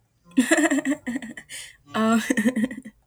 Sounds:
Laughter